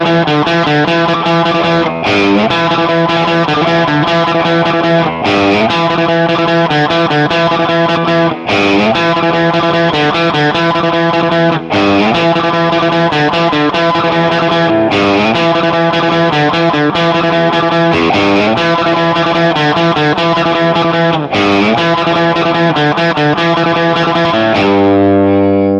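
An electric guitar plays a rhythmic pattern. 0:00.0 - 0:25.8

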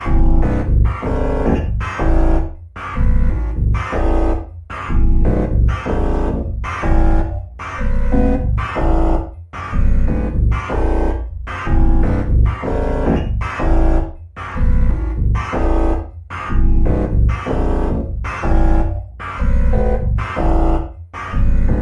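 A machine operating. 0:00.0 - 0:21.8

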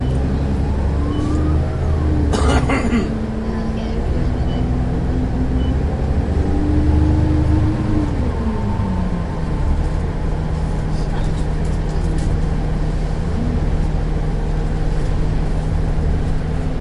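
An engine hums and vibrates continuously and steadily. 0:00.0 - 0:16.8
A siren wails in the distance and fades away. 0:00.1 - 0:02.3
A brief, sharp cough. 0:02.0 - 0:03.2
An engine accelerates. 0:05.9 - 0:09.0
Murmuring and muffled speech in the background. 0:10.7 - 0:13.8

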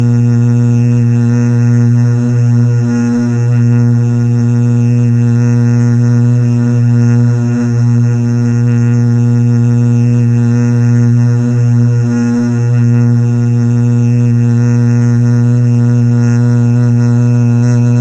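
Boat engine racing. 0:00.0 - 0:18.0

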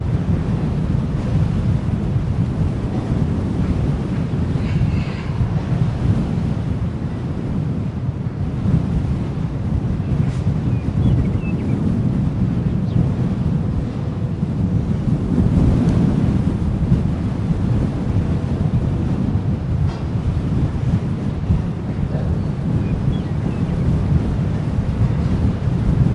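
A loud wind blowing repeatedly outdoors. 0:00.0 - 0:26.1
An animal sound fades into the distance. 0:04.6 - 0:05.4
A muffled bird song fading in the distance. 0:10.5 - 0:11.9
Birds singing fades in the distance. 0:22.8 - 0:24.6

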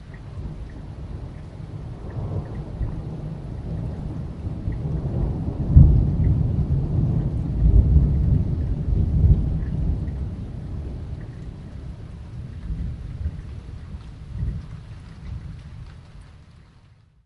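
Thunder rumbles, gradually increasing and fading away. 0:00.0 - 0:16.1
Raindrops steadily dripping during a downpour. 0:00.0 - 0:17.3

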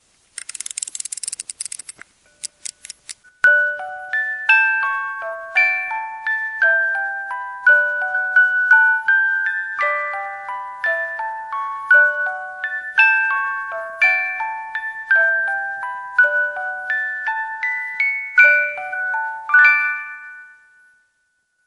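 Cranking sounds from a music box. 0:00.2 - 0:03.2
Repeated high-pitched melody playing, resembling a glockenspiel. 0:03.4 - 0:20.4

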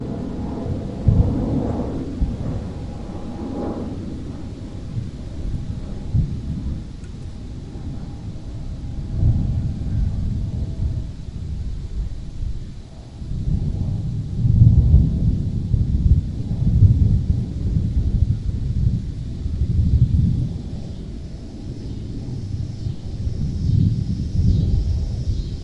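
An airplane flies by in the background. 0:00.0 - 0:25.6
Cicadas sound muffled in the background. 0:20.7 - 0:25.6

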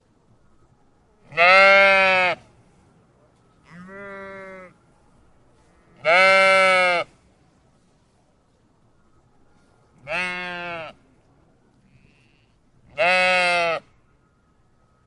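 A lamb bleats. 0:00.0 - 0:15.1

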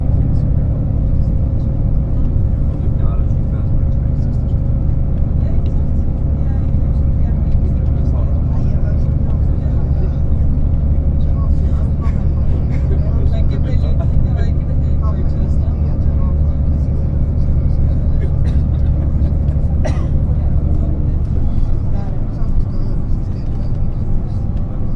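A constant whirring sound in the background suggests a vehicle, possibly public transport or a passenger plane. 0:00.0 - 0:25.0
People are conversing continuously. 0:00.0 - 0:25.0
People are having a quiet conversation. 0:00.0 - 0:25.0
A person coughs lightly. 0:16.9 - 0:20.9

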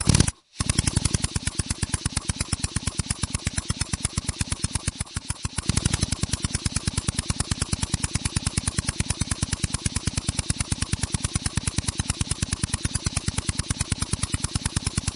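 An air drill is running. 0:00.0 - 0:15.2

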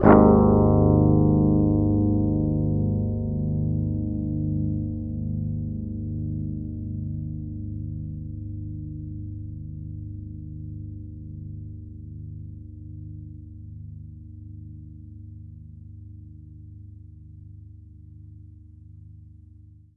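A synthetic guitar chord plays once and fades out. 0:00.0 - 0:20.0

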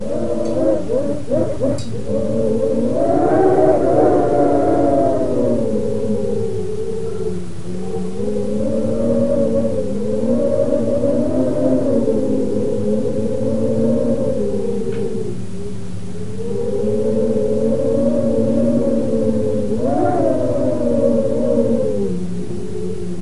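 Wind howls rhythmically through the window. 0:00.0 - 0:02.0
Leaves rustling repeatedly in the wind outdoors. 0:00.1 - 0:23.2
Wind howls loudly through the window and gradually decreases. 0:02.0 - 0:07.2
Wind howling rhythmically through the window, fading. 0:07.2 - 0:15.8
Wind howls through the window, gradually increasing. 0:15.8 - 0:23.2

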